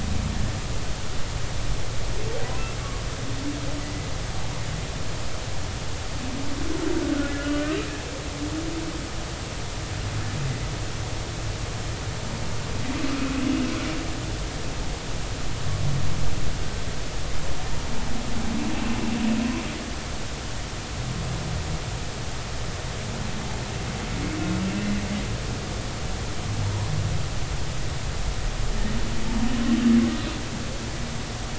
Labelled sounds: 7.2	7.8	humpback whale, 1.3 to 1.8 kHz
18.8	19.1	humpback whale, 2.6 to 2.8 kHz

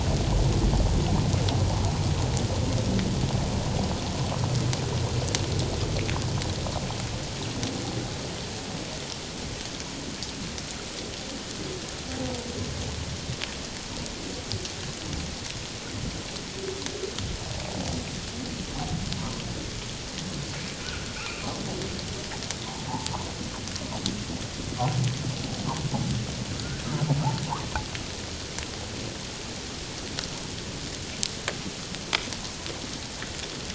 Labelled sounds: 19.2	19.4	humpback whale, 0.91 to 1.1 kHz
20.8	21.1	humpback whale, 1.2 to 1.5 kHz
26.5	26.8	humpback whale, 1.2 to 1.6 kHz

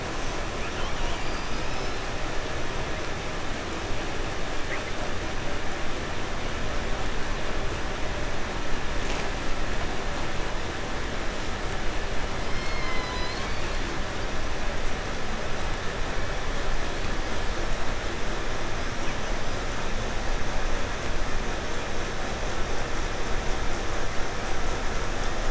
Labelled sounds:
0.1	1.3	killer whale, southern resident, call S10, 0.47 to 8.0 kHz
0.9	2.1	killer whale, southern resident, 0.99 to 7.4 kHz
4.6	5.0	killer whale, 0.34 to 2.9 kHz
12.3	13.8	killer whale, 0.68 to 7.2 kHz

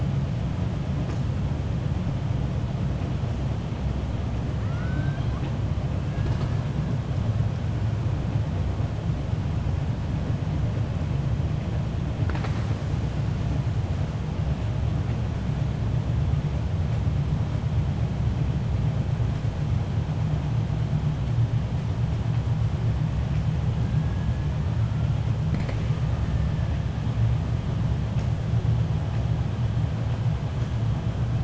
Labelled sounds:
4.6	5.6	killer whale, 0.66 to 4.2 kHz

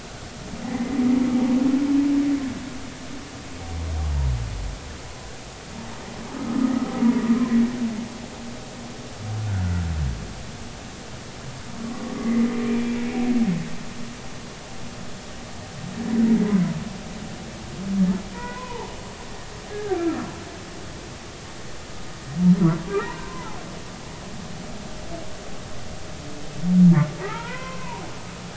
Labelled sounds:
0.6	1.0	humpback whale, 1.8 to 2.1 kHz
6.3	6.8	humpback whale, 1.2 to 1.3 kHz
9.4	9.7	humpback whale, 1.3 to 1.7 kHz
11.8	13.2	humpback whale, 1.1 to 2.5 kHz
18.3	18.9	humpback whale, 0.83 to 2.6 kHz
19.7	20.3	humpback whale, 1.2 to 1.7 kHz
22.8	23.6	humpback whale, 0.80 to 1.4 kHz
27.2	28.1	humpback whale, 0.80 to 2.4 kHz

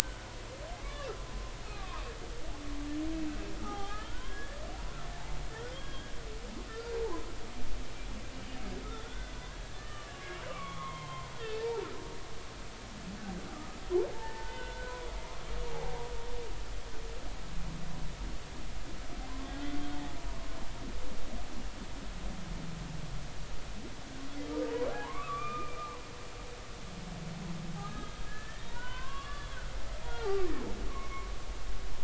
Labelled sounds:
0.8	2.0	humpback whale, 0.93 to 1.3 kHz
3.6	4.6	humpback whale, 0.80 to 3.4 kHz
5.7	6.9	humpback whale, 1.3 to 3.3 kHz
9.0	9.3	humpback whale, 1.4 to 1.6 kHz
9.7	11.9	humpback whale, 0.80 to 3.5 kHz
14.1	14.9	humpback whale, 0.83 to 2.1 kHz
15.7	16.0	humpback whale, 0.80 to 0.90 kHz
24.9	26.0	humpback whale, 0.80 to 2.5 kHz
27.7	29.6	humpback whale, 0.90 to 4.0 kHz
30.0	30.5	humpback whale, 0.80 to 1.2 kHz
30.9	31.3	humpback whale, 0.99 to 2.3 kHz

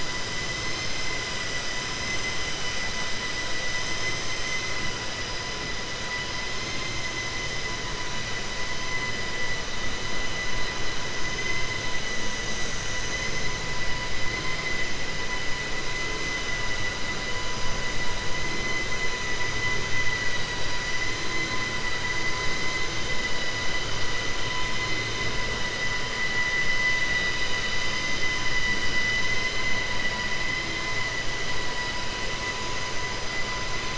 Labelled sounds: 6.5	7.0	vessel noise, 2.0 to 4.2 kHz
29.0	29.7	vessel noise, 1.4 to 4.1 kHz

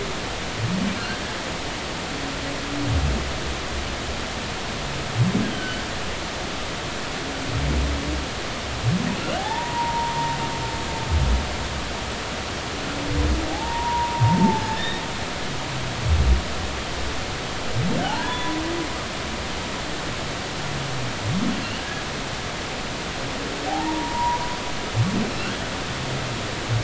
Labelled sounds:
5.5	5.9	humpback whale, 1.4 to 3.2 kHz
9.4	10.4	humpback whale, 0.80 to 1.0 kHz
13.5	15.0	humpback whale, 0.80 to 3.8 kHz
18.0	18.6	humpback whale, 0.80 to 3.5 kHz
21.8	22.0	humpback whale, 1.6 to 1.7 kHz
23.7	24.4	humpback whale, 0.80 to 1.0 kHz
25.3	25.7	humpback whale, 1.3 to 1.9 kHz

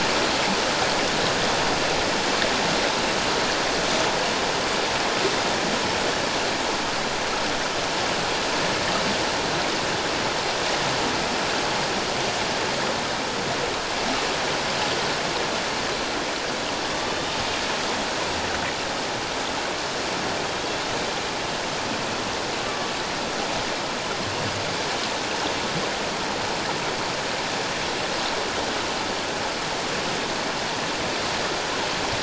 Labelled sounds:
17.1	17.4	killer whale, Bigg's (transient), 3.5 to 3.8 kHz
22.6	22.9	killer whale, Bigg's (transient), 1.1 to 1.3 kHz

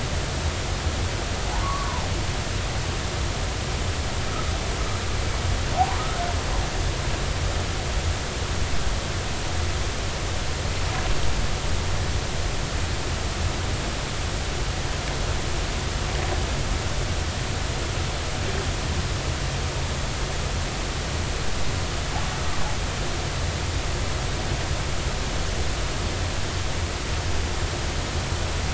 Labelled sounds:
1.6	2.1	humpback whale, 0.80 to 1.2 kHz
6.0	6.2	humpback whale, 1.2 to 1.5 kHz

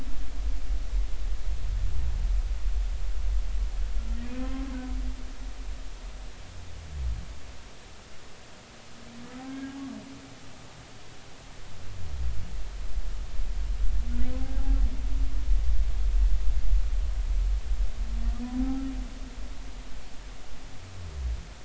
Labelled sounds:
4.4	4.7	humpback whale, 0.99 to 1.1 kHz
9.4	9.8	humpback whale, 1.6 to 1.7 kHz
18.5	18.8	humpback whale, 0.80 to 0.86 kHz

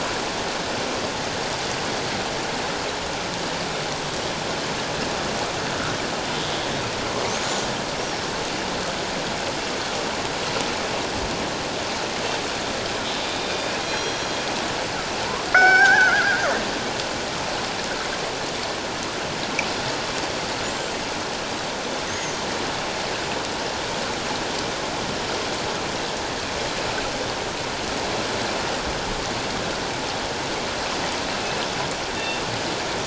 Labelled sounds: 13.8	14.3	killer whale, northern resident, G clan, 3.2 to 5.8 kHz
15.2	16.3	killer whale, northern resident, G clan, 0.78 to 5.6 kHz
20.2	20.5	killer whale, northern resident, G clan, 4.5 to 4.7 kHz
22.1	22.4	killer whale, northern resident, G clan, 5.9 to 6.7 kHz
32.1	32.5	killer whale, northern resident, G clan, 2.6 to 3.7 kHz

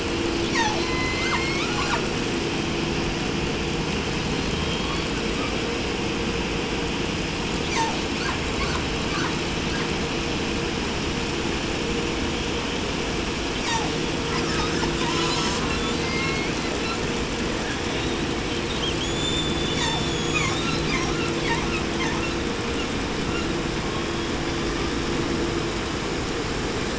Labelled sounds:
0.4	2.1	killer whale, southern resident, J pod, call S01, 0.49 to 8.0 kHz
3.8	5.6	killer whale, 0.73 to 5.0 kHz
7.6	8.1	killer whale, southern resident, call S36, 0.51 to 8.0 kHz
8.2	9.9	killer whale, southern resident, 0.45 to 7.9 kHz
13.6	14.1	killer whale, southern resident, call S36, 0.51 to 8.0 kHz
14.2	17.1	killer whale, 0.56 to 8.0 kHz
14.9	16.0	killer whale, southern resident, J pod, call S04, 0.69 to 8.0 kHz
16.0	16.7	killer whale, southern resident, J pod, call S01, 0.54 to 4.6 kHz
17.6	21.0	killer whale, 0.77 to 8.0 kHz
19.7	20.1	killer whale, southern resident, call S36, 0.54 to 8.0 kHz
20.3	22.4	killer whale, southern resident, 0.54 to 7.3 kHz

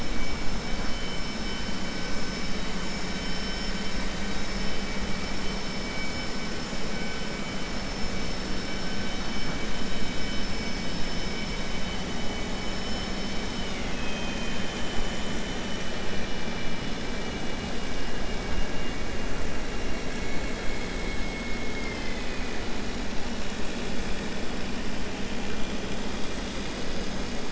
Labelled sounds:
13.5	15.1	vessel noise, 1.7 to 3.7 kHz
17.1	18.0	vessel noise, 2.0 to 3.5 kHz
18.5	19.0	vessel noise, 2.0 to 3.4 kHz
19.8	20.4	vessel noise, 2.2 to 2.8 kHz
21.0	22.6	vessel noise, 1.8 to 4.3 kHz

